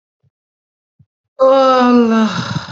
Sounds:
Sigh